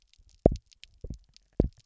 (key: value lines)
label: biophony, double pulse
recorder: SoundTrap 300